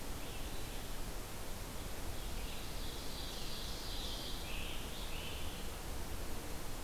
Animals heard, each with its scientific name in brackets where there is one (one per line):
Scarlet Tanager (Piranga olivacea)
Ovenbird (Seiurus aurocapilla)
Red-eyed Vireo (Vireo olivaceus)